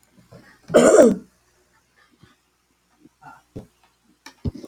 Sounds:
Throat clearing